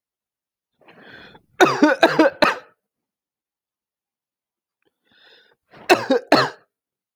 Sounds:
Cough